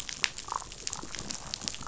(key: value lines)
label: biophony, damselfish
recorder: SoundTrap 500